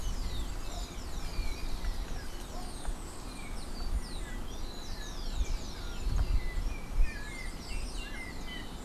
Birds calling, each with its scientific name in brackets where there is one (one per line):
Rufous-collared Sparrow (Zonotrichia capensis)
Yellow-backed Oriole (Icterus chrysater)